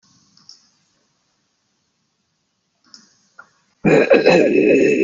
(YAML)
expert_labels:
- quality: poor
  cough_type: unknown
  dyspnea: false
  wheezing: false
  stridor: false
  choking: false
  congestion: false
  nothing: true
  diagnosis: lower respiratory tract infection
  severity: severe
age: 35
gender: male
respiratory_condition: true
fever_muscle_pain: false
status: COVID-19